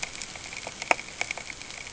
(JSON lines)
{"label": "ambient", "recorder": "HydroMoth"}